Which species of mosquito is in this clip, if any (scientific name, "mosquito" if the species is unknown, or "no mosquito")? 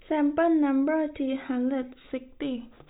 no mosquito